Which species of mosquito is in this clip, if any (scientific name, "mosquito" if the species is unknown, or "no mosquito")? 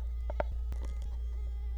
Culex quinquefasciatus